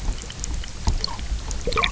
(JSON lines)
{"label": "biophony", "recorder": "SoundTrap 300"}